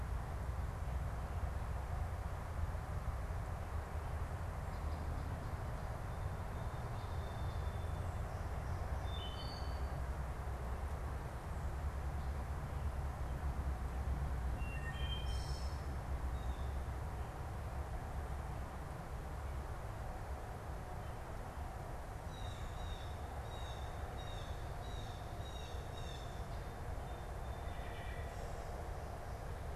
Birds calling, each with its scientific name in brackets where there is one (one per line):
Wood Thrush (Hylocichla mustelina)
Blue Jay (Cyanocitta cristata)
Song Sparrow (Melospiza melodia)